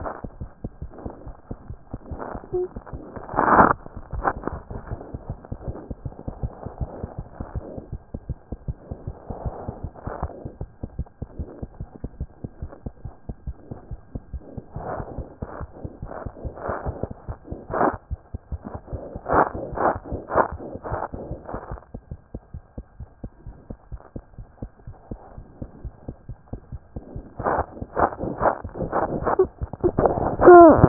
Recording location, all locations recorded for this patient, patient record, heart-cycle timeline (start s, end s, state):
aortic valve (AV)
aortic valve (AV)+pulmonary valve (PV)+mitral valve (MV)
#Age: Infant
#Sex: Female
#Height: nan
#Weight: 9.8 kg
#Pregnancy status: False
#Murmur: Absent
#Murmur locations: nan
#Most audible location: nan
#Systolic murmur timing: nan
#Systolic murmur shape: nan
#Systolic murmur grading: nan
#Systolic murmur pitch: nan
#Systolic murmur quality: nan
#Diastolic murmur timing: nan
#Diastolic murmur shape: nan
#Diastolic murmur grading: nan
#Diastolic murmur pitch: nan
#Diastolic murmur quality: nan
#Outcome: Abnormal
#Campaign: 2014 screening campaign
0.00	7.47	unannotated
7.47	7.56	diastole
7.56	7.65	S1
7.65	7.76	systole
7.76	7.85	S2
7.85	7.95	diastole
7.95	8.04	S1
8.04	8.15	systole
8.15	8.23	S2
8.23	8.30	diastole
8.30	8.39	S1
8.39	8.51	systole
8.51	8.59	S2
8.59	8.69	diastole
8.69	8.77	S1
8.77	8.90	systole
8.90	8.97	S2
8.97	9.06	diastole
9.06	9.14	S1
9.14	9.29	systole
9.29	9.37	S2
9.37	9.46	diastole
9.46	30.88	unannotated